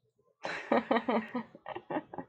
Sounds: Laughter